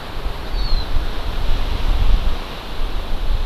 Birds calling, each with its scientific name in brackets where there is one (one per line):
Hawaii Amakihi (Chlorodrepanis virens)